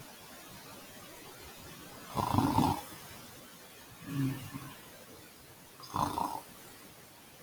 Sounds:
Sniff